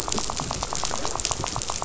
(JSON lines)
{"label": "biophony, rattle", "recorder": "SoundTrap 500"}